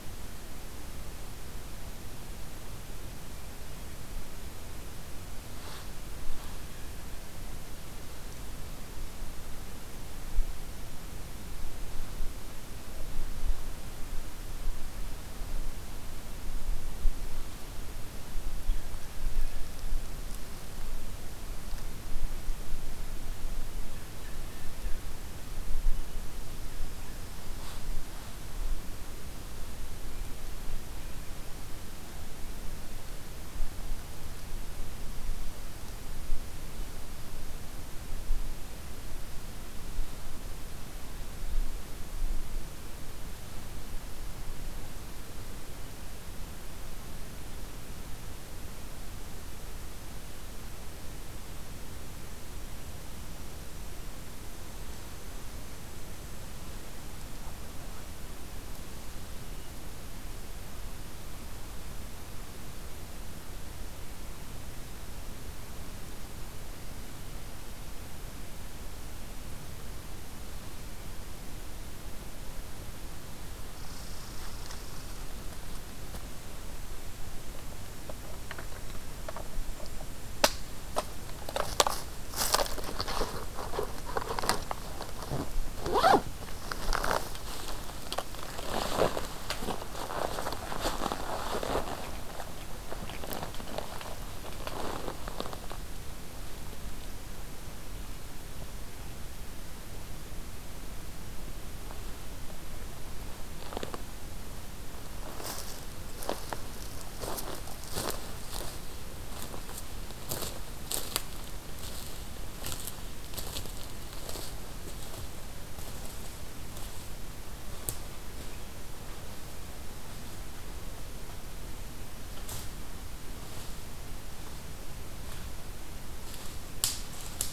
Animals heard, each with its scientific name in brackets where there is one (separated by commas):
Blue Jay (Cyanocitta cristata), Red Squirrel (Tamiasciurus hudsonicus)